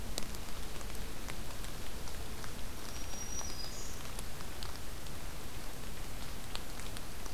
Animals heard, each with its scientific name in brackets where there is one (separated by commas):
Black-throated Green Warbler (Setophaga virens)